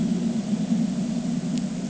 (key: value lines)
label: ambient
recorder: HydroMoth